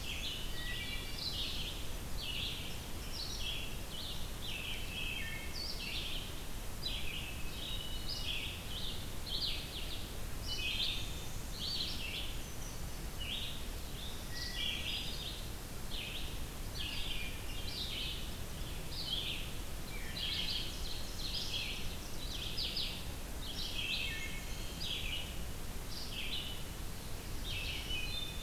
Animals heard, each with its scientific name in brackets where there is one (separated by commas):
Hermit Thrush (Catharus guttatus), Wood Thrush (Hylocichla mustelina), Ovenbird (Seiurus aurocapilla), Red-eyed Vireo (Vireo olivaceus)